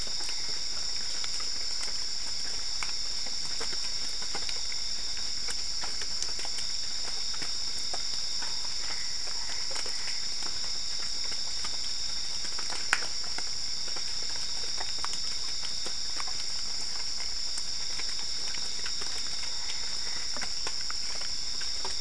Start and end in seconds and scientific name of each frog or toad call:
8.3	10.2	Boana albopunctata
19.2	20.4	Boana albopunctata